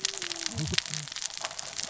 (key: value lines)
label: biophony, cascading saw
recorder: SoundTrap 600 or HydroMoth